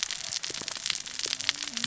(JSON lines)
{"label": "biophony, cascading saw", "recorder": "SoundTrap 600 or HydroMoth"}